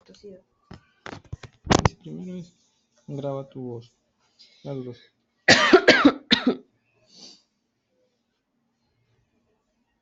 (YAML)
expert_labels:
- quality: good
  cough_type: dry
  dyspnea: false
  wheezing: false
  stridor: false
  choking: false
  congestion: false
  nothing: true
  diagnosis: healthy cough
  severity: pseudocough/healthy cough
age: 27
gender: female
respiratory_condition: true
fever_muscle_pain: false
status: symptomatic